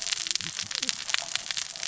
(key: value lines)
label: biophony, cascading saw
recorder: SoundTrap 600 or HydroMoth